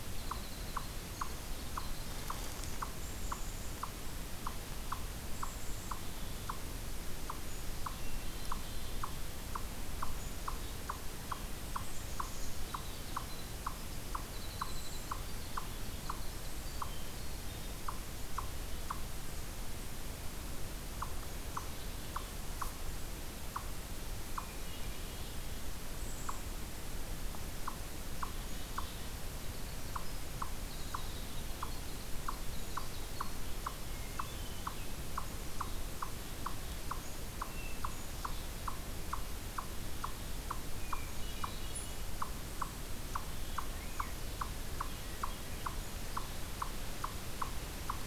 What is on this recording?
Winter Wren, Eastern Chipmunk, Black-capped Chickadee, Hermit Thrush